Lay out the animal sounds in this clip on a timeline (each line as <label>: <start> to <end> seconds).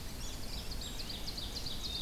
Ovenbird (Seiurus aurocapilla): 0.3 to 2.0 seconds